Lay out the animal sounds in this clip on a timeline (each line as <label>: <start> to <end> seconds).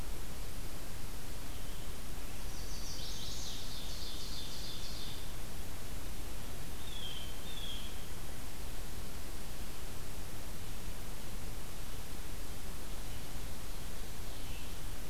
Chestnut-sided Warbler (Setophaga pensylvanica): 2.4 to 3.7 seconds
Ovenbird (Seiurus aurocapilla): 3.0 to 5.2 seconds
Blue Jay (Cyanocitta cristata): 6.8 to 8.2 seconds